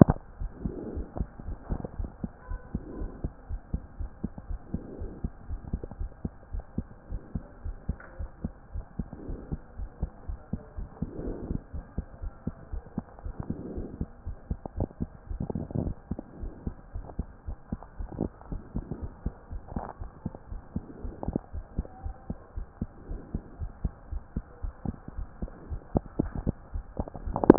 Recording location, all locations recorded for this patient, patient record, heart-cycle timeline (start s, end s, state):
aortic valve (AV)
aortic valve (AV)+pulmonary valve (PV)+tricuspid valve (TV)+mitral valve (MV)
#Age: Child
#Sex: Female
#Height: 128.0 cm
#Weight: 34.3 kg
#Pregnancy status: False
#Murmur: Absent
#Murmur locations: nan
#Most audible location: nan
#Systolic murmur timing: nan
#Systolic murmur shape: nan
#Systolic murmur grading: nan
#Systolic murmur pitch: nan
#Systolic murmur quality: nan
#Diastolic murmur timing: nan
#Diastolic murmur shape: nan
#Diastolic murmur grading: nan
#Diastolic murmur pitch: nan
#Diastolic murmur quality: nan
#Outcome: Normal
#Campaign: 2014 screening campaign
0.18	0.38	diastole
0.38	0.52	S1
0.52	0.62	systole
0.62	0.76	S2
0.76	0.92	diastole
0.92	1.06	S1
1.06	1.18	systole
1.18	1.28	S2
1.28	1.44	diastole
1.44	1.58	S1
1.58	1.68	systole
1.68	1.80	S2
1.80	1.96	diastole
1.96	2.10	S1
2.10	2.20	systole
2.20	2.30	S2
2.30	2.48	diastole
2.48	2.60	S1
2.60	2.72	systole
2.72	2.82	S2
2.82	2.98	diastole
2.98	3.12	S1
3.12	3.22	systole
3.22	3.32	S2
3.32	3.48	diastole
3.48	3.60	S1
3.60	3.70	systole
3.70	3.82	S2
3.82	3.98	diastole
3.98	4.10	S1
4.10	4.20	systole
4.20	4.32	S2
4.32	4.48	diastole
4.48	4.60	S1
4.60	4.72	systole
4.72	4.82	S2
4.82	4.98	diastole
4.98	5.12	S1
5.12	5.22	systole
5.22	5.32	S2
5.32	5.48	diastole
5.48	5.60	S1
5.60	5.68	systole
5.68	5.82	S2
5.82	5.98	diastole
5.98	6.12	S1
6.12	6.24	systole
6.24	6.32	S2
6.32	6.52	diastole
6.52	6.64	S1
6.64	6.74	systole
6.74	6.86	S2
6.86	7.08	diastole
7.08	7.22	S1
7.22	7.36	systole
7.36	7.46	S2
7.46	7.64	diastole
7.64	7.78	S1
7.78	7.88	systole
7.88	8.00	S2
8.00	8.18	diastole
8.18	8.30	S1
8.30	8.42	systole
8.42	8.54	S2
8.54	8.74	diastole
8.74	8.86	S1
8.86	8.98	systole
8.98	9.08	S2
9.08	9.26	diastole
9.26	9.38	S1
9.38	9.50	systole
9.50	9.60	S2
9.60	9.78	diastole
9.78	9.90	S1
9.90	10.00	systole
10.00	10.12	S2
10.12	10.30	diastole
10.30	10.40	S1
10.40	10.52	systole
10.52	10.62	S2
10.62	10.76	diastole
10.76	10.90	S1
10.90	10.98	systole
10.98	11.10	S2
11.10	11.22	diastole
11.22	11.36	S1
11.36	11.48	systole
11.48	11.62	S2
11.62	11.76	diastole
11.76	11.86	S1
11.86	11.94	systole
11.94	12.06	S2
12.06	12.22	diastole
12.22	12.34	S1
12.34	12.46	systole
12.46	12.56	S2
12.56	12.72	diastole
12.72	12.82	S1
12.82	12.94	systole
12.94	13.04	S2
13.04	13.24	diastole
13.24	13.36	S1
13.36	13.48	systole
13.48	13.58	S2
13.58	13.74	diastole
13.74	13.90	S1
13.90	14.00	systole
14.00	14.10	S2
14.10	14.26	diastole
14.26	14.38	S1
14.38	14.46	systole
14.46	14.60	S2
14.60	14.76	diastole
14.76	14.92	S1
14.92	15.02	systole
15.02	15.12	S2
15.12	15.30	diastole
15.30	15.48	S1
15.48	15.54	systole
15.54	15.68	S2
15.68	15.80	diastole
15.80	15.96	S1
15.96	16.10	systole
16.10	16.24	S2
16.24	16.40	diastole
16.40	16.52	S1
16.52	16.62	systole
16.62	16.76	S2
16.76	16.94	diastole
16.94	17.06	S1
17.06	17.16	systole
17.16	17.32	S2
17.32	17.48	diastole
17.48	17.58	S1
17.58	17.68	systole
17.68	17.82	S2
17.82	17.98	diastole
17.98	18.10	S1
18.10	18.20	systole
18.20	18.34	S2
18.34	18.50	diastole
18.50	18.64	S1
18.64	18.76	systole
18.76	18.86	S2
18.86	19.02	diastole
19.02	19.12	S1
19.12	19.22	systole
19.22	19.36	S2
19.36	19.52	diastole
19.52	19.62	S1
19.62	19.72	systole
19.72	19.86	S2
19.86	20.00	diastole
20.00	20.12	S1
20.12	20.22	systole
20.22	20.34	S2
20.34	20.52	diastole
20.52	20.62	S1
20.62	20.72	systole
20.72	20.86	S2
20.86	21.00	diastole
21.00	21.14	S1
21.14	21.24	systole
21.24	21.40	S2
21.40	21.54	diastole
21.54	21.66	S1
21.66	21.74	systole
21.74	21.86	S2
21.86	22.04	diastole
22.04	22.16	S1
22.16	22.26	systole
22.26	22.40	S2
22.40	22.56	diastole
22.56	22.68	S1
22.68	22.78	systole
22.78	22.92	S2
22.92	23.10	diastole
23.10	23.24	S1
23.24	23.30	systole
23.30	23.42	S2
23.42	23.60	diastole
23.60	23.72	S1
23.72	23.80	systole
23.80	23.96	S2
23.96	24.12	diastole
24.12	24.26	S1
24.26	24.36	systole
24.36	24.46	S2
24.46	24.64	diastole
24.64	24.76	S1
24.76	24.84	systole
24.84	24.98	S2
24.98	25.14	diastole
25.14	25.30	S1
25.30	25.42	systole
25.42	25.52	S2
25.52	25.68	diastole
25.68	25.84	S1
25.84	25.92	systole
25.92	26.04	S2
26.04	26.18	diastole
26.18	26.34	S1
26.34	26.46	systole
26.46	26.58	S2
26.58	26.74	diastole
26.74	26.86	S1
26.86	27.00	systole
27.00	27.10	S2
27.10	27.24	diastole
27.24	27.40	S1
27.40	27.48	systole
27.48	27.58	S2